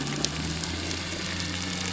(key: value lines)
label: biophony
recorder: SoundTrap 300